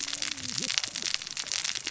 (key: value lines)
label: biophony, cascading saw
recorder: SoundTrap 600 or HydroMoth